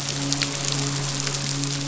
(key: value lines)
label: biophony, midshipman
recorder: SoundTrap 500